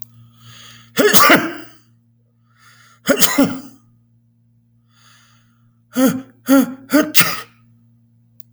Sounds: Sneeze